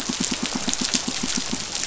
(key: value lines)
label: biophony, pulse
recorder: SoundTrap 500